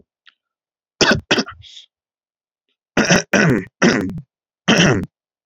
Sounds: Throat clearing